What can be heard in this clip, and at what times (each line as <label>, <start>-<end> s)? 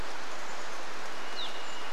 Chestnut-backed Chickadee call, 0-2 s
Evening Grosbeak call, 0-2 s
Golden-crowned Kinglet call, 0-2 s
Varied Thrush song, 0-2 s
rain, 0-2 s